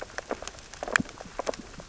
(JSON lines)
{"label": "biophony, sea urchins (Echinidae)", "recorder": "SoundTrap 600 or HydroMoth"}